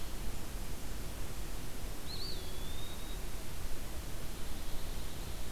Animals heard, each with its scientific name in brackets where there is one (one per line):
Eastern Wood-Pewee (Contopus virens)
Pine Warbler (Setophaga pinus)